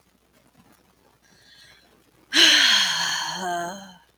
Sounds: Sigh